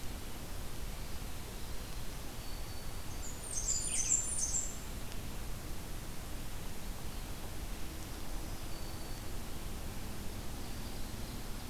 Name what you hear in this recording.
Black-throated Green Warbler, Blackburnian Warbler